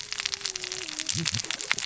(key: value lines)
label: biophony, cascading saw
recorder: SoundTrap 600 or HydroMoth